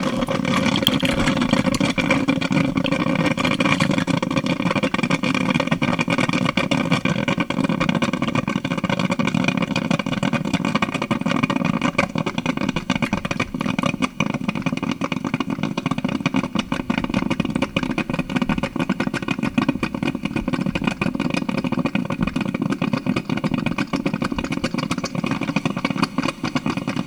Is someone making coffee?
yes